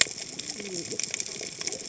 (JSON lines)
{"label": "biophony, cascading saw", "recorder": "HydroMoth"}